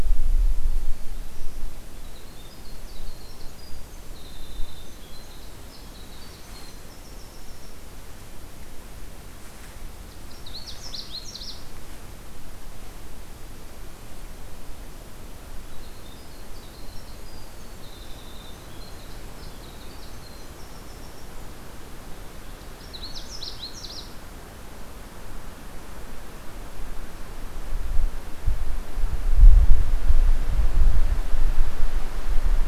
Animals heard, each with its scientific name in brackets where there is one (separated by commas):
Canada Warbler (Cardellina canadensis), Winter Wren (Troglodytes hiemalis)